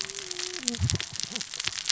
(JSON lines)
{"label": "biophony, cascading saw", "recorder": "SoundTrap 600 or HydroMoth"}